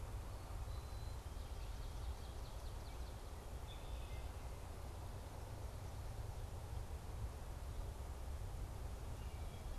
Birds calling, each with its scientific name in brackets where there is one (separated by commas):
Wood Thrush (Hylocichla mustelina), Swamp Sparrow (Melospiza georgiana), Red-winged Blackbird (Agelaius phoeniceus), White-throated Sparrow (Zonotrichia albicollis)